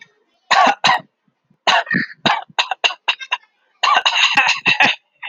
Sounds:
Cough